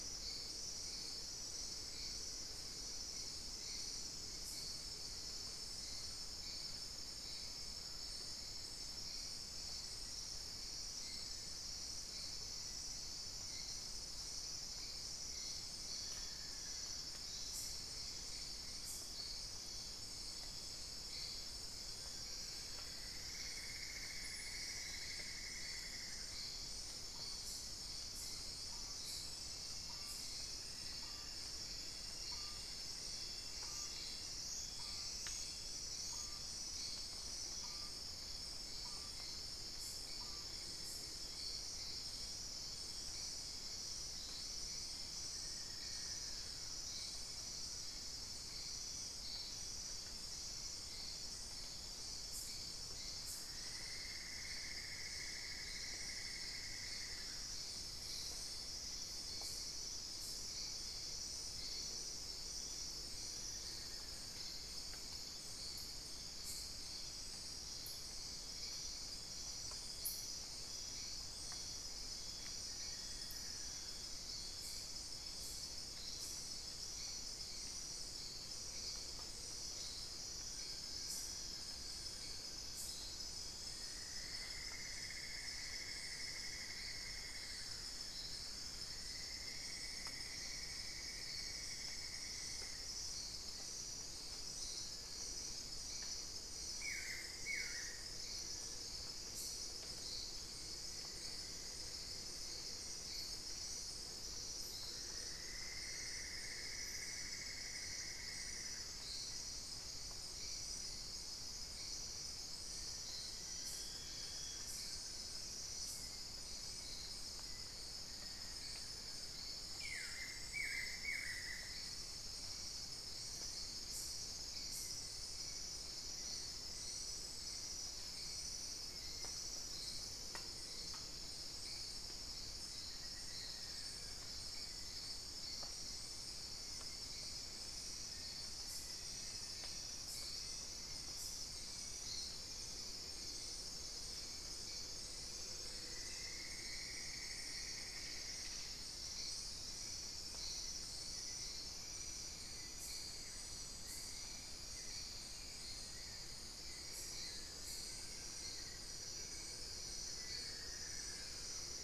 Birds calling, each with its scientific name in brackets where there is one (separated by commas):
Buff-throated Woodcreeper (Xiphorhynchus guttatus), Long-billed Woodcreeper (Nasica longirostris), Amazonian Barred-Woodcreeper (Dendrocolaptes certhia), Black-faced Antthrush (Formicarius analis), unidentified bird, Cinnamon-throated Woodcreeper (Dendrexetastes rufigula)